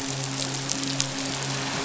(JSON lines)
{"label": "biophony, midshipman", "recorder": "SoundTrap 500"}